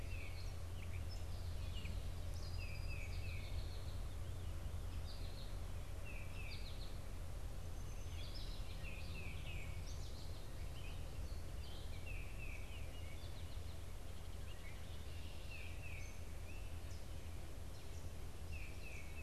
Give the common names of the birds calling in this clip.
Gray Catbird, Tufted Titmouse, American Goldfinch